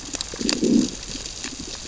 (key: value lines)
label: biophony, growl
recorder: SoundTrap 600 or HydroMoth